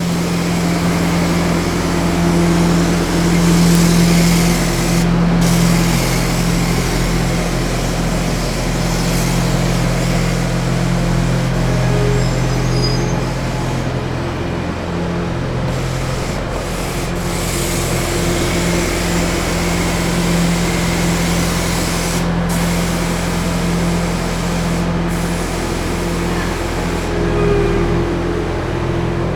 Is the sound source moving?
yes